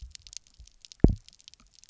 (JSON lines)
{"label": "biophony, double pulse", "recorder": "SoundTrap 300"}